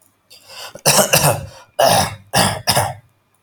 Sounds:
Throat clearing